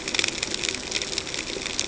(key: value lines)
label: ambient
recorder: HydroMoth